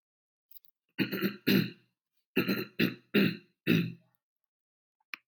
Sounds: Throat clearing